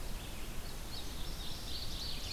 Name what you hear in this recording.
Red-eyed Vireo, Indigo Bunting, Ovenbird